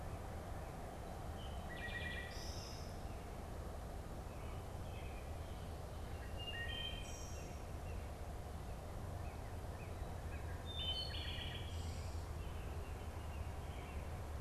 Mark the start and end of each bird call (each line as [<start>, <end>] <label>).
[0.00, 1.32] American Robin (Turdus migratorius)
[0.00, 3.12] Wood Thrush (Hylocichla mustelina)
[4.22, 14.22] Wood Thrush (Hylocichla mustelina)
[8.93, 10.72] Northern Cardinal (Cardinalis cardinalis)